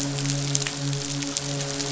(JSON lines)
{"label": "biophony, midshipman", "recorder": "SoundTrap 500"}